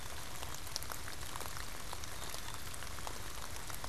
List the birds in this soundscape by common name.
Black-capped Chickadee